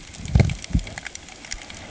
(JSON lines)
{"label": "ambient", "recorder": "HydroMoth"}